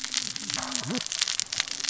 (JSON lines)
{"label": "biophony, cascading saw", "recorder": "SoundTrap 600 or HydroMoth"}